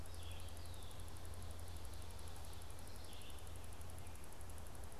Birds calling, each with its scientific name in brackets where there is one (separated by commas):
Red-eyed Vireo (Vireo olivaceus), Red-winged Blackbird (Agelaius phoeniceus)